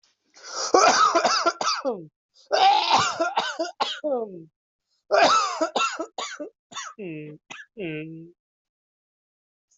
{"expert_labels": [{"quality": "good", "cough_type": "wet", "dyspnea": false, "wheezing": false, "stridor": false, "choking": false, "congestion": false, "nothing": true, "diagnosis": "upper respiratory tract infection", "severity": "mild"}], "age": 49, "gender": "female", "respiratory_condition": true, "fever_muscle_pain": false, "status": "symptomatic"}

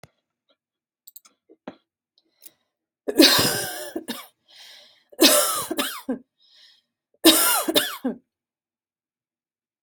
{"expert_labels": [{"quality": "good", "cough_type": "dry", "dyspnea": false, "wheezing": false, "stridor": false, "choking": false, "congestion": false, "nothing": true, "diagnosis": "upper respiratory tract infection", "severity": "mild"}], "age": 43, "gender": "female", "respiratory_condition": true, "fever_muscle_pain": false, "status": "symptomatic"}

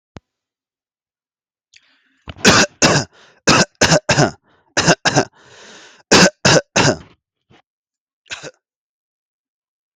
{"expert_labels": [{"quality": "poor", "cough_type": "dry", "dyspnea": false, "wheezing": false, "stridor": false, "choking": false, "congestion": false, "nothing": true, "diagnosis": "healthy cough", "severity": "pseudocough/healthy cough"}], "age": 25, "gender": "male", "respiratory_condition": false, "fever_muscle_pain": false, "status": "symptomatic"}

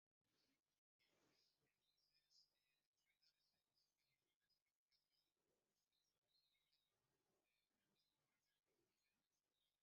{"expert_labels": [{"quality": "no cough present", "dyspnea": false, "wheezing": false, "stridor": false, "choking": false, "congestion": false, "nothing": false}]}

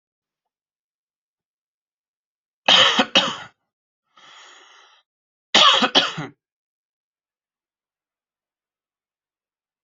{"expert_labels": [{"quality": "good", "cough_type": "dry", "dyspnea": false, "wheezing": false, "stridor": false, "choking": false, "congestion": false, "nothing": true, "diagnosis": "lower respiratory tract infection", "severity": "mild"}, {"quality": "good", "cough_type": "wet", "dyspnea": false, "wheezing": false, "stridor": false, "choking": false, "congestion": false, "nothing": true, "diagnosis": "obstructive lung disease", "severity": "mild"}, {"quality": "good", "cough_type": "dry", "dyspnea": false, "wheezing": false, "stridor": false, "choking": false, "congestion": false, "nothing": true, "diagnosis": "upper respiratory tract infection", "severity": "mild"}, {"quality": "good", "cough_type": "dry", "dyspnea": false, "wheezing": false, "stridor": false, "choking": false, "congestion": false, "nothing": true, "diagnosis": "lower respiratory tract infection", "severity": "mild"}], "age": 24, "gender": "male", "respiratory_condition": false, "fever_muscle_pain": false, "status": "symptomatic"}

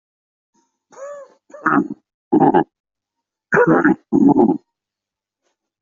{"expert_labels": [{"quality": "poor", "cough_type": "unknown", "dyspnea": false, "wheezing": false, "stridor": false, "choking": false, "congestion": false, "nothing": true, "severity": "unknown"}], "age": 55, "gender": "male", "respiratory_condition": false, "fever_muscle_pain": false, "status": "symptomatic"}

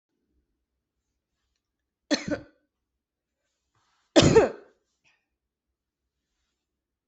{"expert_labels": [{"quality": "good", "cough_type": "unknown", "dyspnea": false, "wheezing": false, "stridor": false, "choking": false, "congestion": false, "nothing": true, "diagnosis": "upper respiratory tract infection", "severity": "unknown"}], "age": 32, "gender": "female", "respiratory_condition": false, "fever_muscle_pain": false, "status": "symptomatic"}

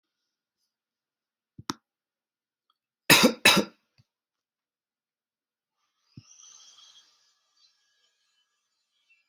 {"expert_labels": [{"quality": "good", "cough_type": "dry", "dyspnea": false, "wheezing": false, "stridor": false, "choking": false, "congestion": false, "nothing": true, "diagnosis": "COVID-19", "severity": "unknown"}], "age": 40, "gender": "male", "respiratory_condition": false, "fever_muscle_pain": true, "status": "symptomatic"}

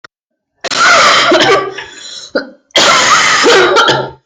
{"expert_labels": [{"quality": "ok", "cough_type": "dry", "dyspnea": false, "wheezing": false, "stridor": false, "choking": false, "congestion": false, "nothing": true, "diagnosis": "upper respiratory tract infection", "severity": "mild"}], "age": 26, "gender": "female", "respiratory_condition": false, "fever_muscle_pain": false, "status": "healthy"}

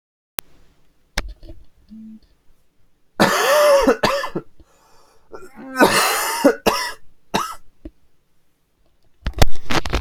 {"expert_labels": [{"quality": "good", "cough_type": "dry", "dyspnea": false, "wheezing": false, "stridor": false, "choking": false, "congestion": false, "nothing": true, "diagnosis": "upper respiratory tract infection", "severity": "mild"}], "age": 23, "gender": "male", "respiratory_condition": true, "fever_muscle_pain": false, "status": "symptomatic"}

